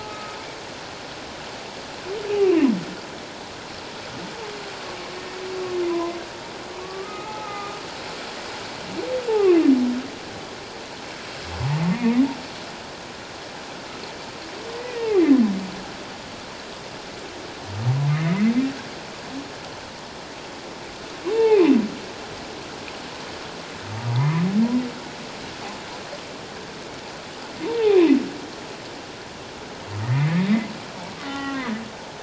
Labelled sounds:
2.3	2.7	humpback whale, 2.4 to 2.9 kHz
5.2	6.2	humpback whale, 0.88 to 2.0 kHz
6.8	7.8	humpback whale, 0.78 to 1.3 kHz
11.9	12.2	humpback whale, 1.8 to 2.2 kHz
14.7	15.2	humpback whale, 0.78 to 2.0 kHz
18.1	18.5	humpback whale, 1.7 to 2.2 kHz
21.3	21.7	humpback whale, 0.78 to 2.8 kHz
24.1	24.5	humpback whale, 0.81 to 1.3 kHz
27.6	28.2	humpback whale, 0.78 to 2.8 kHz
31.2	31.7	humpback whale, 0.78 to 3.1 kHz

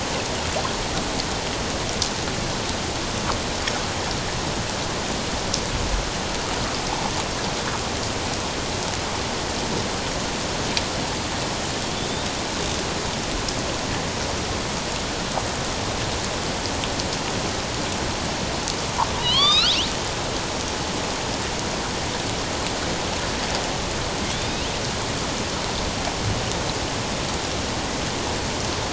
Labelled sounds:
12.1	12.3	killer whale, northern resident, A clan, AB subclan, call N16, 3.4 to 4.0 kHz
19.2	19.8	killer whale, northern resident, A clan, AB subclan, call N16, 1.0 to 5.5 kHz
24.3	24.7	killer whale, northern resident, A clan, AB subclan, call N16, 2.4 to 4.0 kHz

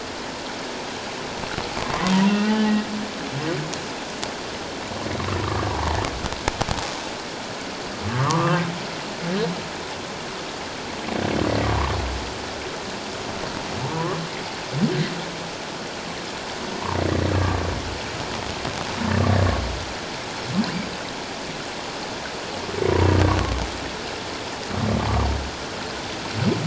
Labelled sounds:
2.3	2.7	humpback whale, 1.4 to 2.8 kHz
5.4	6.0	humpback whale, 0.78 to 1.2 kHz
8.1	8.6	humpback whale, 0.91 to 1.3 kHz
13.8	14.2	humpback whale, 0.84 to 1.2 kHz
23.1	23.4	humpback whale, 0.94 to 1.2 kHz

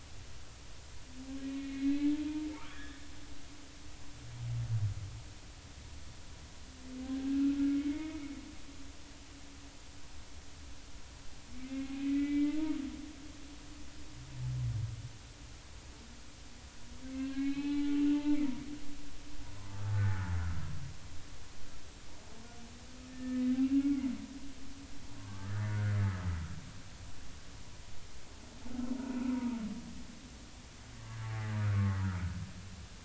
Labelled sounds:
1.5	2.1	humpback whale, 1.6 to 4.1 kHz
2.5	3.0	humpback whale, 1.1 to 3.5 kHz
7.1	7.4	humpback whale, 1.5 to 1.7 kHz
7.9	8.1	humpback whale, 2.1 to 2.3 kHz
11.6	12.8	humpback whale, 0.86 to 2.2 kHz
13.1	13.5	humpback whale, 2.2 to 2.4 kHz
17.1	18.5	humpback whale, 0.80 to 4.2 kHz
19.9	20.2	humpback whale, 1.7 to 1.9 kHz
23.1	23.4	humpback whale, 1.7 to 1.8 kHz
23.8	24.1	humpback whale, 2.0 to 2.3 kHz
25.2	25.9	humpback whale, 0.99 to 1.9 kHz
29.3	29.6	humpback whale, 0.83 to 1.0 kHz
31.6	32.0	humpback whale, 1.0 to 1.6 kHz

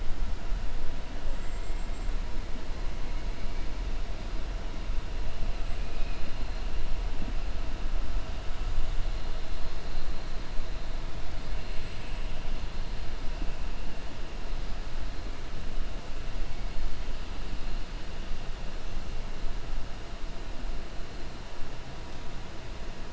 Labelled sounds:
5.7	6.4	killer whale, 2.0 to 3.4 kHz

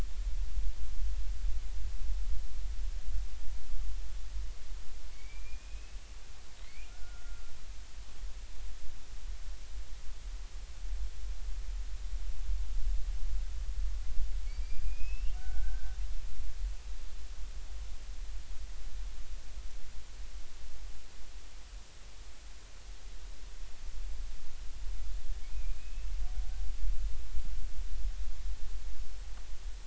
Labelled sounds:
5.1	6.0	killer whale, Bigg's (transient), 2.2 to 4.8 kHz
6.6	7.4	killer whale, Bigg's (transient), 1.3 to 2.5 kHz
14.4	16.0	killer whale, Bigg's (transient), 1.3 to 5.6 kHz
25.5	26.1	killer whale, Bigg's (transient), 2.3 to 2.8 kHz

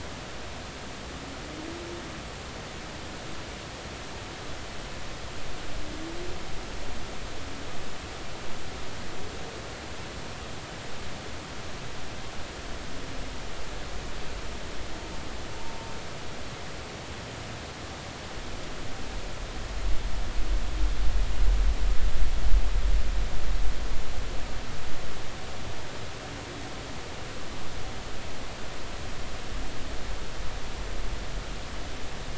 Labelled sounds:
15.6	15.9	humpback whale, 0.86 to 1.0 kHz

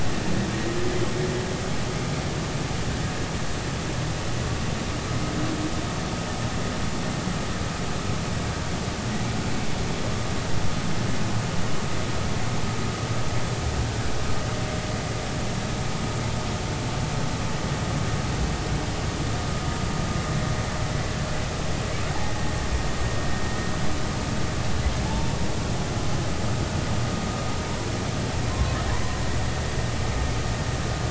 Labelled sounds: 25.0	25.4	humpback whale, 0.80 to 0.96 kHz
28.5	29.2	humpback whale, 0.93 to 1.1 kHz

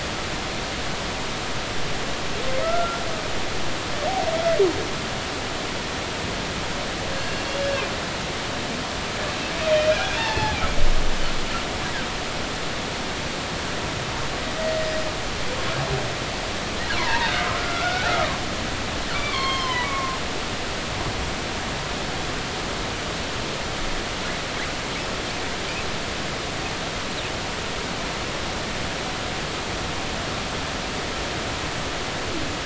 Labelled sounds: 2.6	3.0	humpback whale, 1.2 to 1.4 kHz
7.1	7.7	humpback whale, 1.6 to 2.8 kHz
9.7	10.6	humpback whale, 0.80 to 2.5 kHz
17.0	18.4	humpback whale, 0.86 to 2.4 kHz
19.1	20.2	humpback whale, 0.90 to 6.5 kHz

